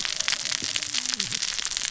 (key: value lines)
label: biophony, cascading saw
recorder: SoundTrap 600 or HydroMoth